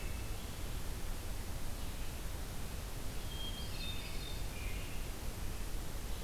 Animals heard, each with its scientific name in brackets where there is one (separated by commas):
Hermit Thrush (Catharus guttatus), American Robin (Turdus migratorius)